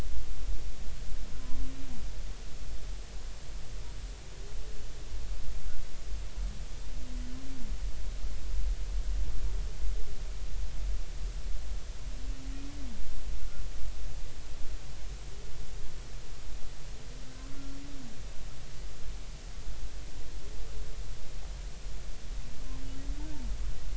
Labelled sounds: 17.5	17.8	humpback whale, 1.3 to 1.4 kHz

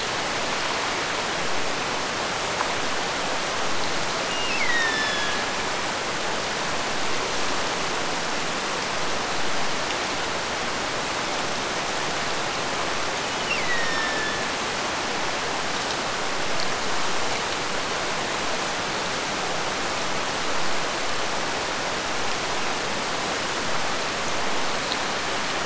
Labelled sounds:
4.3	5.7	killer whale, Bigg's (transient), Gulf of Alaska transient, 1.6 to 5.8 kHz
13.3	14.6	killer whale, Bigg's (transient), Gulf of Alaska transient, 1.5 to 5.8 kHz

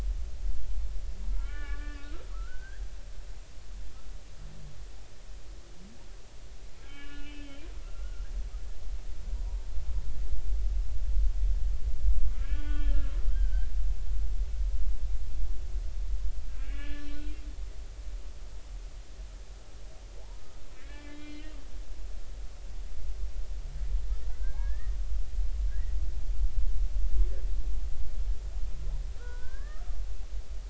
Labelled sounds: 1.3	2.8	humpback whale, 1.1 to 3.0 kHz
6.8	8.3	humpback whale, 1.1 to 3.3 kHz
12.3	13.7	humpback whale, 1.1 to 3.3 kHz
16.6	17.3	humpback whale, 1.4 to 4.2 kHz
20.8	21.5	humpback whale, 1.6 to 3.3 kHz
24.3	25.0	humpback whale, 1.4 to 2.0 kHz
25.7	26.0	humpback whale, 1.5 to 2.0 kHz
29.2	29.9	humpback whale, 0.93 to 1.9 kHz

